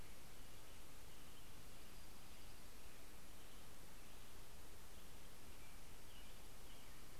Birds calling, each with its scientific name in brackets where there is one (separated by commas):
American Robin (Turdus migratorius), Dark-eyed Junco (Junco hyemalis)